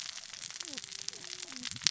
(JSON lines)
{"label": "biophony, cascading saw", "recorder": "SoundTrap 600 or HydroMoth"}